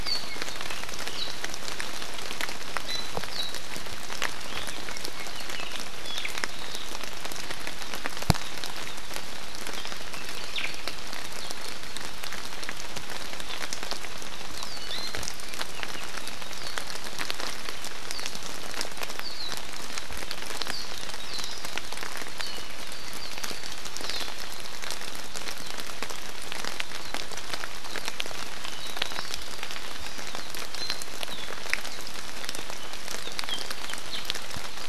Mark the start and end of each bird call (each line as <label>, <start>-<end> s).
Apapane (Himatione sanguinea), 0.0-1.2 s
Iiwi (Drepanis coccinea), 2.8-3.1 s
Apapane (Himatione sanguinea), 4.8-6.8 s
Omao (Myadestes obscurus), 10.5-10.7 s
Warbling White-eye (Zosterops japonicus), 16.5-16.7 s
Warbling White-eye (Zosterops japonicus), 18.1-18.2 s
Warbling White-eye (Zosterops japonicus), 19.1-19.5 s
Warbling White-eye (Zosterops japonicus), 20.7-20.8 s
Warbling White-eye (Zosterops japonicus), 21.2-21.5 s
Iiwi (Drepanis coccinea), 30.7-31.0 s